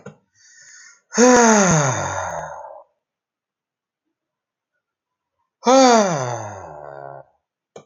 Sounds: Sigh